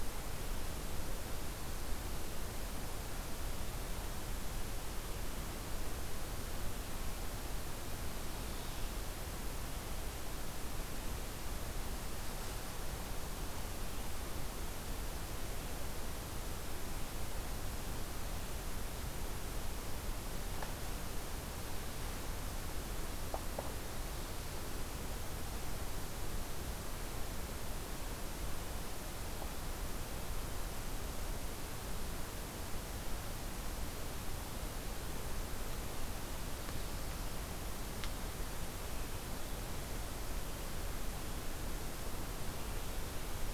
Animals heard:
forest ambience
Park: Hubbard Brook Experimental Forest